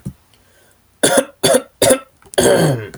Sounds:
Cough